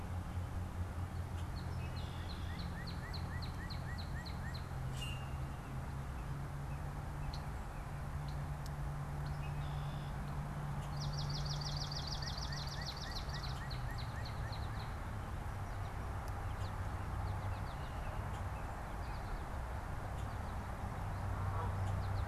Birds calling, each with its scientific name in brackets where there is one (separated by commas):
Red-winged Blackbird (Agelaius phoeniceus), Canada Goose (Branta canadensis), Common Grackle (Quiscalus quiscula), American Goldfinch (Spinus tristis), Swamp Sparrow (Melospiza georgiana), Northern Cardinal (Cardinalis cardinalis)